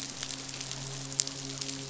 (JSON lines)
{"label": "biophony, midshipman", "recorder": "SoundTrap 500"}